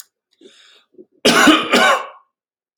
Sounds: Cough